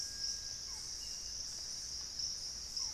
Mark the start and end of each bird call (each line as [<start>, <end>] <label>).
[0.00, 2.94] Barred Forest-Falcon (Micrastur ruficollis)
[0.48, 2.94] Buff-throated Woodcreeper (Xiphorhynchus guttatus)